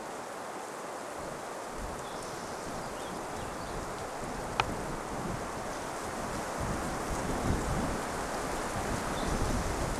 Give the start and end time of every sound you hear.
2s-4s: Spotted Towhee song
2s-4s: unidentified sound
8s-10s: Spotted Towhee song

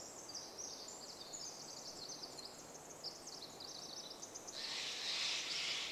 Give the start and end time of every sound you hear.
0s-6s: Pacific Wren song
4s-6s: Steller's Jay call

